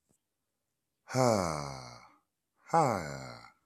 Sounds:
Sigh